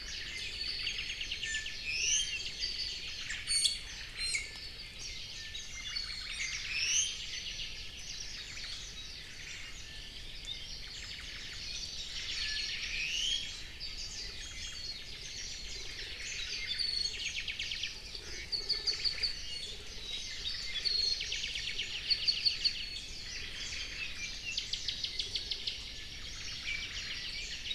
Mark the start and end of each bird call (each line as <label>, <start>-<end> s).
Omao (Myadestes obscurus), 0.0-1.2 s
Apapane (Himatione sanguinea), 0.7-1.8 s
Iiwi (Drepanis coccinea), 0.8-2.3 s
Omao (Myadestes obscurus), 2.0-2.5 s
Omao (Myadestes obscurus), 3.0-4.4 s
Iiwi (Drepanis coccinea), 3.3-4.6 s
Apapane (Himatione sanguinea), 5.3-6.5 s
Omao (Myadestes obscurus), 5.7-6.4 s
Iiwi (Drepanis coccinea), 6.3-7.2 s
Omao (Myadestes obscurus), 8.2-8.8 s
Omao (Myadestes obscurus), 9.1-9.8 s
Iiwi (Drepanis coccinea), 9.5-10.3 s
Omao (Myadestes obscurus), 10.7-11.7 s
Apapane (Himatione sanguinea), 12.3-12.9 s
Iiwi (Drepanis coccinea), 12.7-13.6 s
Omao (Myadestes obscurus), 13.3-13.9 s
Iiwi (Drepanis coccinea), 14.1-14.8 s
Omao (Myadestes obscurus), 14.4-14.8 s
Omao (Myadestes obscurus), 15.8-16.8 s
Apapane (Himatione sanguinea), 16.5-18.0 s
Omao (Myadestes obscurus), 18.2-19.3 s
Apapane (Himatione sanguinea), 18.4-19.4 s
Iiwi (Drepanis coccinea), 19.3-19.7 s
Apapane (Himatione sanguinea), 19.9-22.7 s
Omao (Myadestes obscurus), 20.6-21.0 s
Omao (Myadestes obscurus), 21.8-24.1 s
Iiwi (Drepanis coccinea), 22.6-23.1 s
Apapane (Himatione sanguinea), 23.9-25.8 s
Omao (Myadestes obscurus), 26.2-27.3 s